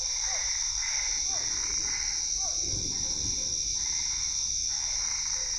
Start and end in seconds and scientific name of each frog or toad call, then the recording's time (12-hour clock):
0.0	5.5	Boana albopunctata
0.1	2.6	Physalaemus cuvieri
2.7	3.7	Boana lundii
4.8	5.5	Boana lundii
8:00pm